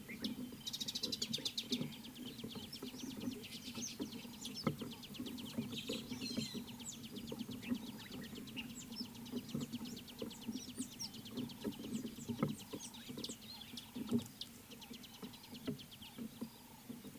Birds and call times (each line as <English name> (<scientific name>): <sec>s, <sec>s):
Mariqua Sunbird (Cinnyris mariquensis): 1.1s
White-headed Buffalo-Weaver (Dinemellia dinemelli): 6.3s
Speckled Mousebird (Colius striatus): 10.8s
Scarlet-chested Sunbird (Chalcomitra senegalensis): 14.4s